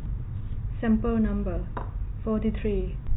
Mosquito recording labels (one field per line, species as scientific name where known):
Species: no mosquito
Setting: cup